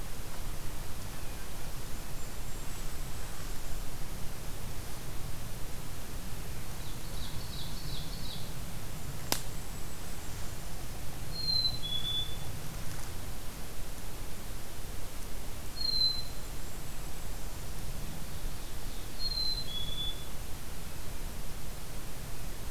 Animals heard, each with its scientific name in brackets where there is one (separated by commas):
Ovenbird (Seiurus aurocapilla), Golden-crowned Kinglet (Regulus satrapa), Black-capped Chickadee (Poecile atricapillus)